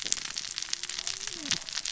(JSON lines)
{"label": "biophony, cascading saw", "recorder": "SoundTrap 600 or HydroMoth"}